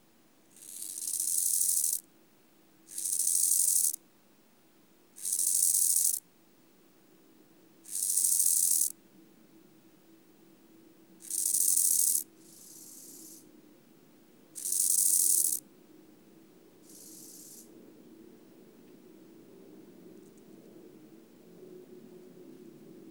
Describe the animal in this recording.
Chorthippus eisentrauti, an orthopteran